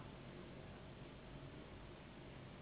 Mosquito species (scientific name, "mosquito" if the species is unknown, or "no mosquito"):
Anopheles gambiae s.s.